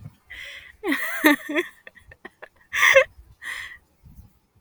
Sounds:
Laughter